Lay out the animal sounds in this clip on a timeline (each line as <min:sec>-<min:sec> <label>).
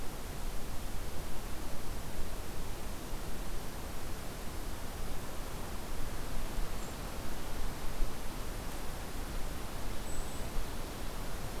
0:06.7-0:07.2 Golden-crowned Kinglet (Regulus satrapa)
0:09.8-0:10.5 Golden-crowned Kinglet (Regulus satrapa)